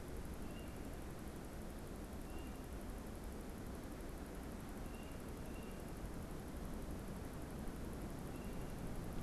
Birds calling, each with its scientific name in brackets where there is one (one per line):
Tufted Titmouse (Baeolophus bicolor)